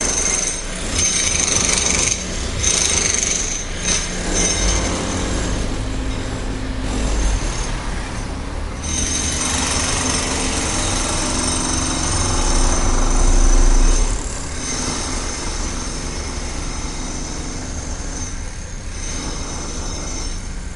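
A jackhammer hammers loudly and repeatedly with occasional pauses. 0.0 - 5.2
A drill is drilling consistently, then fading into the background. 4.2 - 8.8
Machine engines running. 7.7 - 8.9
A jackhammer hammers loudly, gradually fading into the background. 8.8 - 14.4
A drill is drilling loudly and consistently. 14.4 - 20.8
A jackhammer is hammering muffledly in the distance. 14.4 - 20.8

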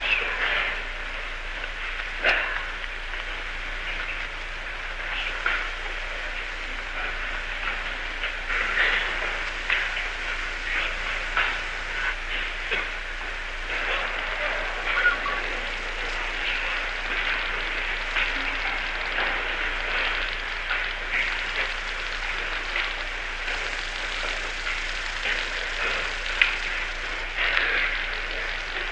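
White noise with crackles. 0.0 - 28.9
Background noise from a distance. 0.5 - 28.9
A cough fades in the distance. 2.1 - 2.9
A cough fades in the distance. 12.5 - 13.1

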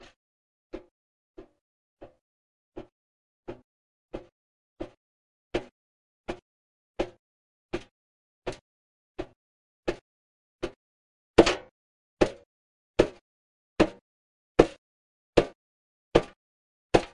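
Footsteps increasing in intensity from low to high over time. 0.0 - 11.2
Someone hitting or stepping on a hard metallic surface. 11.3 - 17.1

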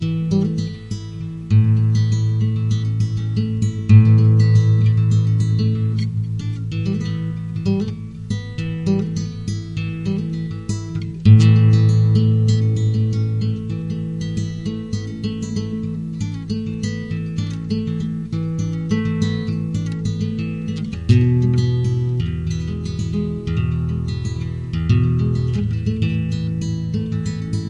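An acoustic guitar is playing a song. 0.1 - 27.7

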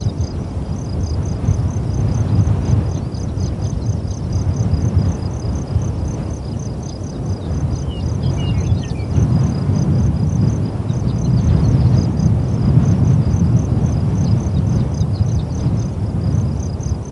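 A gentle breeze is blowing softly and continuously. 0.0 - 17.1
Crickets chirp rhythmically with a steady, high-pitched sound. 0.0 - 17.1
A short melodic chirp of birds in a natural setting. 7.9 - 9.9

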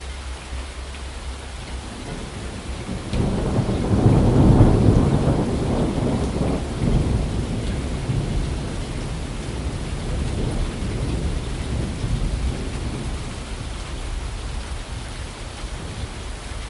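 Rainfall. 0.0 - 2.8
Thunder during rainfall. 3.1 - 6.1
Rainfall. 6.4 - 16.4

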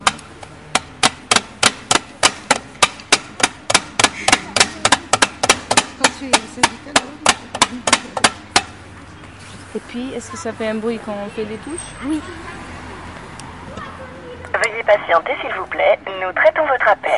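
A single distinct digging sound into gravel. 0.0 - 0.3
A person digs into gravel with a steady, loud scraping sound. 0.7 - 8.8
Two women are conversing in low voices that gradually fade. 6.2 - 9.1
A woman speaks in a steady and clear voice. 9.7 - 11.9
A woman hums neutrally in a normal pitch. 11.9 - 12.6
A lady's voice is transmitted loudly through a walkie-talkie-like device with slight crackling. 14.4 - 17.2

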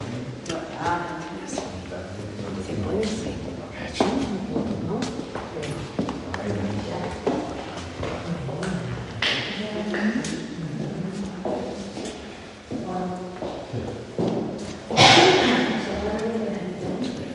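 Two people are talking with echoing voices. 0.0 - 4.0
A woman is speaking distantly with an echo. 4.1 - 7.1
Repeating footsteps echoing. 4.1 - 7.1
Footsteps echoing. 7.2 - 12.4
A woman is talking in the background. 12.4 - 14.8
Footsteps in the background. 12.4 - 14.8
A woman coughs. 14.9 - 15.8
A woman is talking with an echo effect. 15.8 - 17.3

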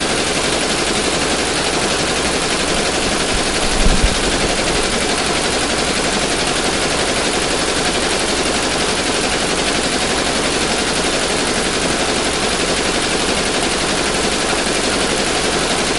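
An industrial embroidery machine is operating. 0.0 - 16.0

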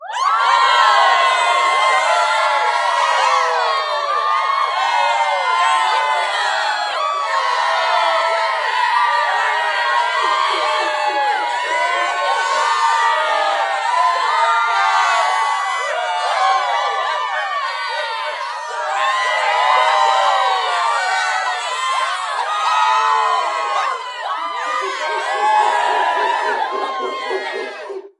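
A crowd cheers loudly with changing intensity. 0.0 - 28.2
A dog barks repeatedly. 10.1 - 12.5
Several dogs bark repeatedly in the distance. 16.9 - 20.5
A dog barks repeatedly. 24.7 - 28.1

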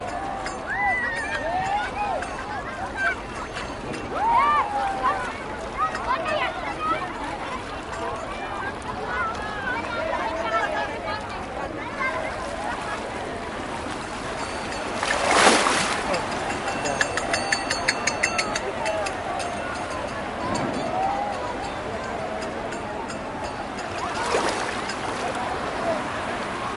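People are talking outside. 0.0 - 14.0
Water flowing. 0.0 - 16.5
A phone or bell is ringing repeatedly. 0.1 - 8.7
Water splashes. 14.7 - 16.5
Loud ringing repeats. 16.7 - 19.8
Water flowing. 19.9 - 26.8
A phone or bell is ringing repeatedly. 20.3 - 26.1

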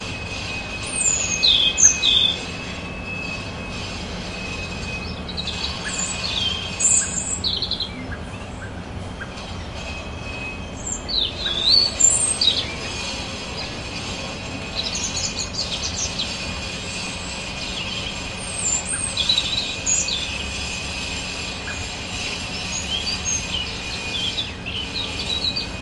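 A circular saw operates faintly in the distance, creating a constant friction sound. 0.0 - 25.8
Birds chirp rhythmically with a high-pitched tone in a garden. 0.8 - 2.4
Birds chirp rhythmically with a high-pitched tone in a garden. 5.7 - 8.1
A bird chirps rhythmically with a high-pitched tone. 10.9 - 12.8
Birds chirp rhythmically with a high-pitched tone in the distance. 14.6 - 16.4
Birds chirp rhythmically with a high-pitched tone in the distance. 18.3 - 20.8
Birds chirp rhythmically with a high-pitched tone in the distance. 22.7 - 25.8

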